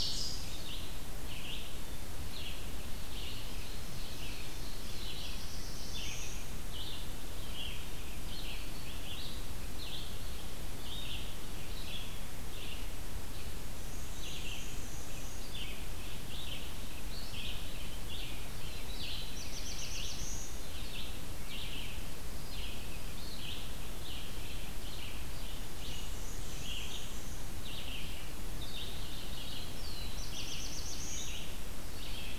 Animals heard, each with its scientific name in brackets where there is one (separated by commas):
Black-throated Blue Warbler (Setophaga caerulescens), Ovenbird (Seiurus aurocapilla), Red-eyed Vireo (Vireo olivaceus), Black-and-white Warbler (Mniotilta varia)